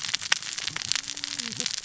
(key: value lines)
label: biophony, cascading saw
recorder: SoundTrap 600 or HydroMoth